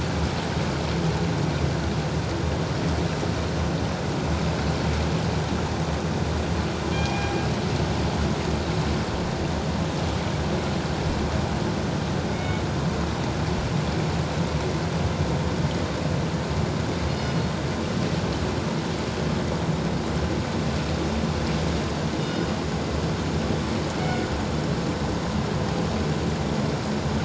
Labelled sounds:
6.9	7.3	killer whale, northern resident, G clan, 2.3 to 2.5 kHz
12.3	12.6	killer whale, northern resident, G clan, 2.2 to 2.3 kHz
17.1	17.4	killer whale, northern resident, G clan, 2.8 to 5.2 kHz
22.2	22.5	killer whale, northern resident, G clan, 3.6 to 5.1 kHz
24.0	24.3	killer whale, northern resident, G clan, 2.1 to 2.2 kHz

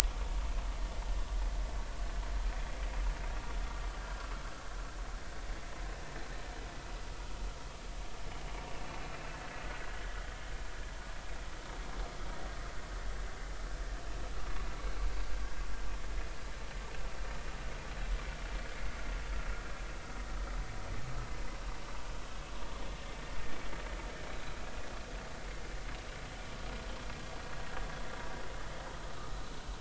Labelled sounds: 8.3	8.6	vessel noise, 2.8 to 3.0 kHz
29.1	29.4	vessel noise, 1.1 to 1.3 kHz

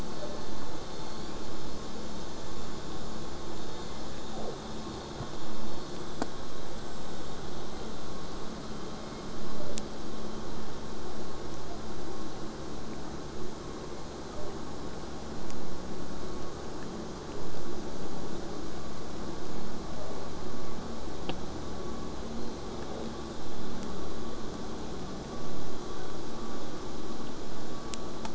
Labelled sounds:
0.0	0.5	killer whale, southern resident, J pod, 0.20 to 1.1 kHz
0.9	1.5	killer whale, southern resident, J pod, 1.9 to 5.0 kHz
3.7	4.6	killer whale, southern resident, J pod, 0.20 to 2.3 kHz
8.9	9.8	killer whale, southern resident, J pod, 0.15 to 2.4 kHz
19.9	20.3	killer whale, southern resident, J pod, 0.17 to 1.3 kHz

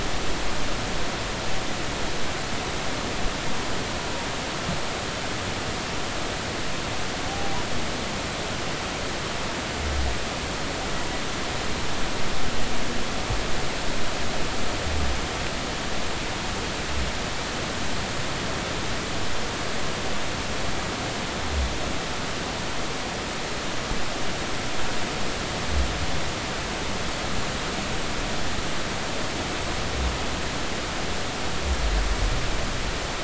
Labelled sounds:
7.3	7.6	humpback whale, 0.80 to 0.83 kHz

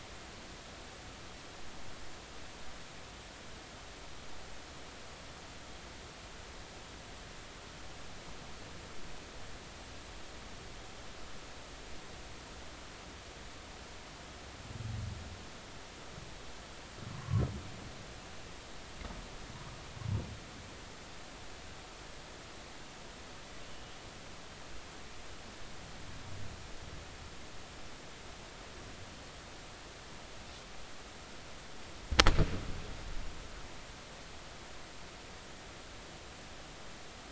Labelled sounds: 17.2	17.4	humpback whale, 0.99 to 1.2 kHz

